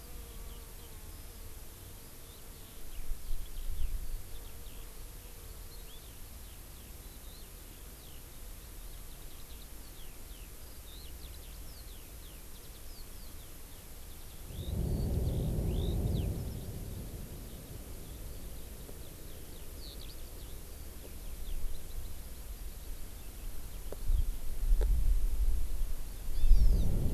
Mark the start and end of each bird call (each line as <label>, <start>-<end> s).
Eurasian Skylark (Alauda arvensis), 0.0-24.3 s
Hawaii Amakihi (Chlorodrepanis virens), 26.3-26.9 s